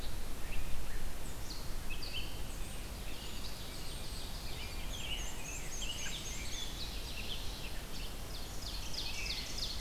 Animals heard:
Ovenbird (Seiurus aurocapilla), American Robin (Turdus migratorius), Red-eyed Vireo (Vireo olivaceus), Black-and-white Warbler (Mniotilta varia)

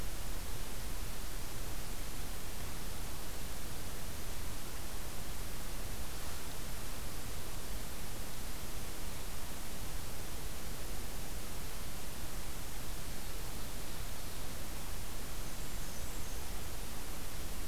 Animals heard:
Blackburnian Warbler (Setophaga fusca)

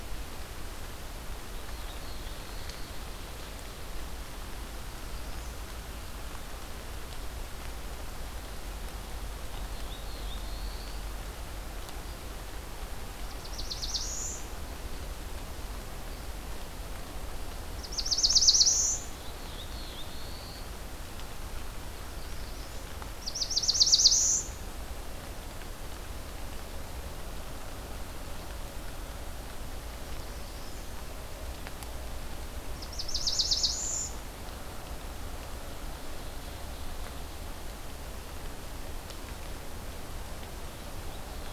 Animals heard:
Ovenbird (Seiurus aurocapilla), Black-throated Blue Warbler (Setophaga caerulescens)

